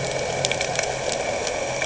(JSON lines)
{"label": "anthrophony, boat engine", "recorder": "HydroMoth"}